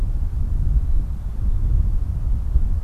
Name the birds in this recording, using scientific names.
Poecile gambeli